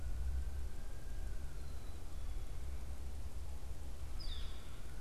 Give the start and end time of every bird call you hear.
1.3s-2.4s: Black-capped Chickadee (Poecile atricapillus)
4.0s-4.7s: Northern Flicker (Colaptes auratus)

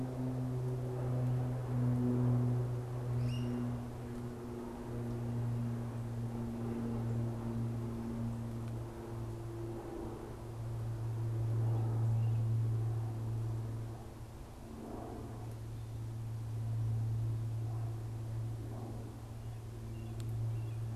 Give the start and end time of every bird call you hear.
3.0s-3.8s: Great Crested Flycatcher (Myiarchus crinitus)

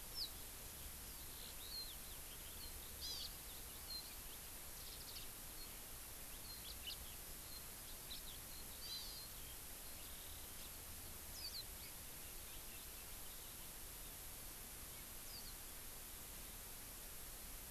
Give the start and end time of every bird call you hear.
0.2s-0.3s: Hawaii Amakihi (Chlorodrepanis virens)
1.1s-10.7s: Eurasian Skylark (Alauda arvensis)
3.0s-3.3s: Hawaii Amakihi (Chlorodrepanis virens)
8.8s-9.3s: Hawaii Amakihi (Chlorodrepanis virens)
11.4s-14.2s: Eurasian Skylark (Alauda arvensis)

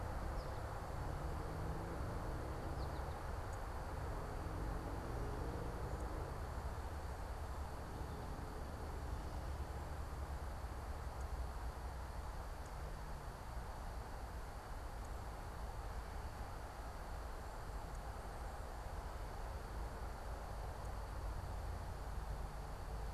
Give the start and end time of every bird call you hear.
0.0s-3.4s: American Goldfinch (Spinus tristis)

